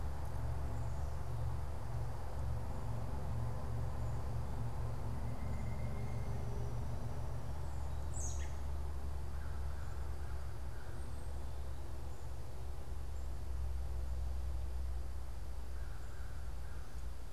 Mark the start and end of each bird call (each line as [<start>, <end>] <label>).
[5.10, 6.40] unidentified bird
[8.00, 8.60] American Robin (Turdus migratorius)
[9.30, 17.30] American Crow (Corvus brachyrhynchos)